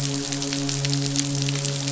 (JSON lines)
{"label": "biophony, midshipman", "recorder": "SoundTrap 500"}